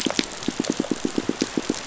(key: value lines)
label: biophony, pulse
recorder: SoundTrap 500